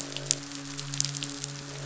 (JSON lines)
{"label": "biophony, midshipman", "recorder": "SoundTrap 500"}
{"label": "biophony, croak", "recorder": "SoundTrap 500"}